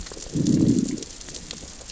{"label": "biophony, growl", "recorder": "SoundTrap 600 or HydroMoth"}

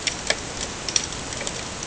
{"label": "ambient", "recorder": "HydroMoth"}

